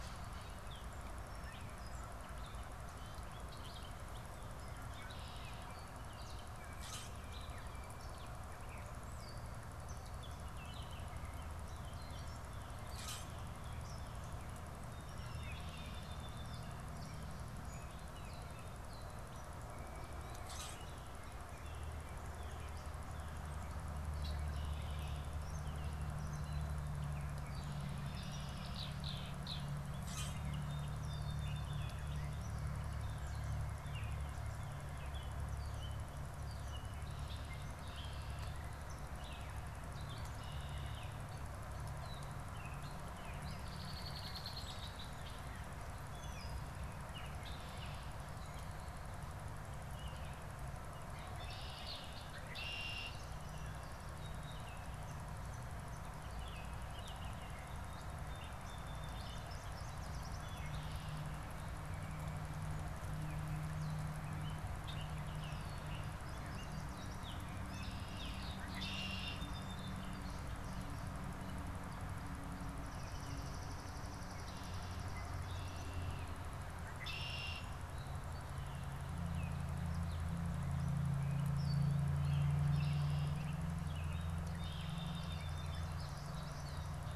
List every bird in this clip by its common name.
Red-winged Blackbird, Common Grackle, Song Sparrow, Gray Catbird, Yellow Warbler, Swamp Sparrow, Baltimore Oriole, American Robin